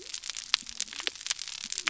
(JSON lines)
{"label": "biophony", "recorder": "SoundTrap 300"}